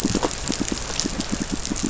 {"label": "biophony, pulse", "recorder": "SoundTrap 500"}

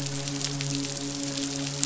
{"label": "biophony, midshipman", "recorder": "SoundTrap 500"}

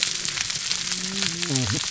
{"label": "biophony, whup", "recorder": "SoundTrap 300"}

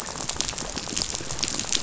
{"label": "biophony, rattle", "recorder": "SoundTrap 500"}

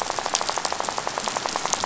{"label": "biophony, rattle", "recorder": "SoundTrap 500"}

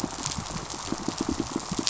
{"label": "biophony, pulse", "recorder": "SoundTrap 500"}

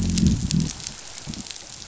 {"label": "biophony, growl", "recorder": "SoundTrap 500"}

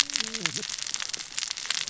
{"label": "biophony, cascading saw", "recorder": "SoundTrap 600 or HydroMoth"}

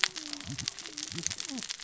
{"label": "biophony, cascading saw", "recorder": "SoundTrap 600 or HydroMoth"}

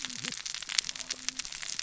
{"label": "biophony, cascading saw", "recorder": "SoundTrap 600 or HydroMoth"}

